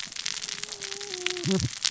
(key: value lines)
label: biophony, cascading saw
recorder: SoundTrap 600 or HydroMoth